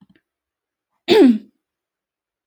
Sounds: Throat clearing